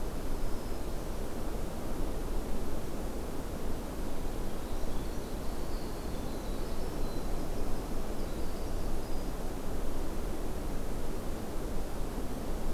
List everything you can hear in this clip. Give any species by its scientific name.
Setophaga virens, Troglodytes hiemalis